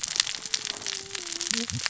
{"label": "biophony, cascading saw", "recorder": "SoundTrap 600 or HydroMoth"}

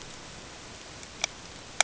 {"label": "ambient", "recorder": "HydroMoth"}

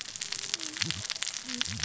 {"label": "biophony, cascading saw", "recorder": "SoundTrap 600 or HydroMoth"}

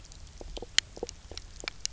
{"label": "biophony, knock croak", "recorder": "SoundTrap 300"}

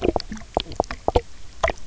{"label": "biophony, knock croak", "recorder": "SoundTrap 300"}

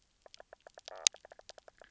{"label": "biophony, knock croak", "recorder": "SoundTrap 300"}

